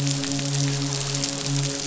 {"label": "biophony, midshipman", "recorder": "SoundTrap 500"}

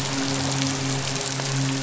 {"label": "biophony, midshipman", "recorder": "SoundTrap 500"}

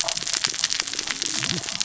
{"label": "biophony, cascading saw", "recorder": "SoundTrap 600 or HydroMoth"}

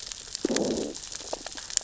{"label": "biophony, growl", "recorder": "SoundTrap 600 or HydroMoth"}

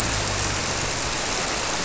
{"label": "biophony", "recorder": "SoundTrap 300"}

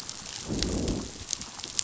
{"label": "biophony, growl", "recorder": "SoundTrap 500"}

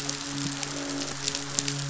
{"label": "biophony, midshipman", "recorder": "SoundTrap 500"}
{"label": "biophony, croak", "recorder": "SoundTrap 500"}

